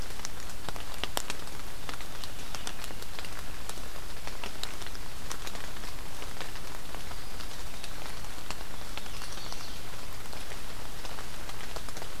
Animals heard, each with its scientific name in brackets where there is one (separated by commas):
Eastern Wood-Pewee (Contopus virens), Chestnut-sided Warbler (Setophaga pensylvanica)